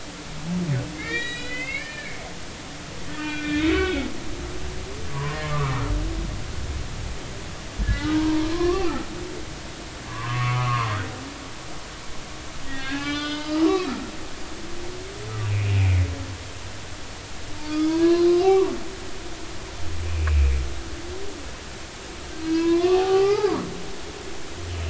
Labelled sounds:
0.9	2.2	humpback whale, 1.6 to 8.0 kHz
3.1	4.1	humpback whale, 1.4 to 3.8 kHz
5.1	5.8	humpback whale, 0.93 to 1.4 kHz
7.8	9.1	humpback whale, 0.90 to 3.0 kHz
10.1	10.9	humpback whale, 0.93 to 1.4 kHz
12.7	14.4	humpback whale, 1.1 to 5.2 kHz
15.7	16.0	humpback whale, 2.0 to 2.6 kHz
17.7	18.8	humpback whale, 0.93 to 4.2 kHz
20.1	20.5	humpback whale, 2.3 to 2.7 kHz
22.4	23.7	humpback whale, 0.80 to 5.1 kHz

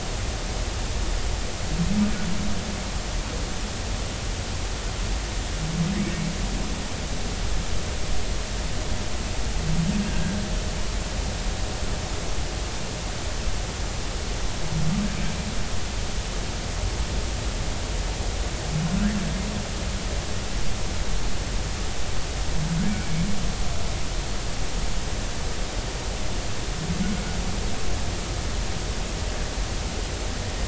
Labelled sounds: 10.1	10.4	humpback whale, 1.5 to 1.7 kHz

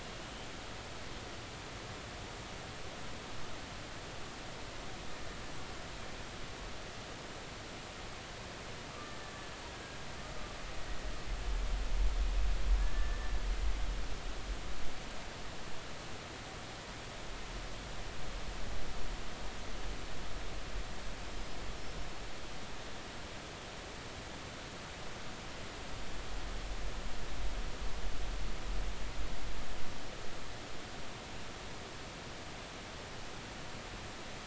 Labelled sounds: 8.9	9.2	killer whale, Bigg's (transient), 1.1 to 1.3 kHz
9.7	10.0	killer whale, Bigg's (transient), 1.6 to 1.7 kHz
12.8	13.3	killer whale, Bigg's (transient), 1.6 to 2.0 kHz
21.3	21.7	killer whale, Bigg's (transient), 5.0 to 5.2 kHz

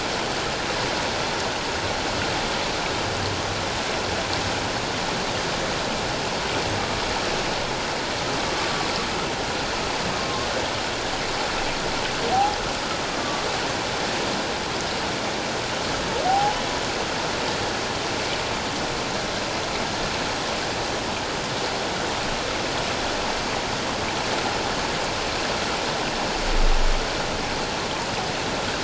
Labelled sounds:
10.2	10.5	humpback whale, 1.0 to 1.1 kHz
12.3	12.6	humpback whale, 0.78 to 0.88 kHz
13.2	13.4	humpback whale, 1.1 to 1.2 kHz
16.2	16.6	humpback whale, 0.78 to 0.91 kHz

